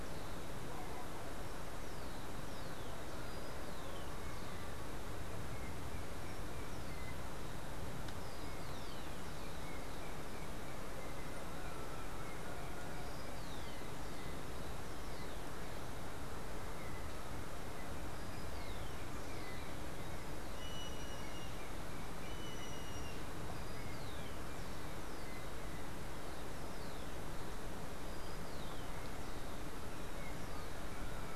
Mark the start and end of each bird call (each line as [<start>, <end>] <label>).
[0.00, 19.70] Rufous-collared Sparrow (Zonotrichia capensis)
[20.30, 23.40] Yellow-headed Caracara (Milvago chimachima)
[23.70, 31.36] Rufous-collared Sparrow (Zonotrichia capensis)